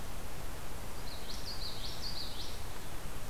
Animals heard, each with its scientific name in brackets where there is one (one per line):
Common Yellowthroat (Geothlypis trichas)